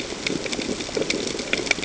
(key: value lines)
label: ambient
recorder: HydroMoth